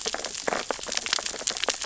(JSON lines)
{"label": "biophony, sea urchins (Echinidae)", "recorder": "SoundTrap 600 or HydroMoth"}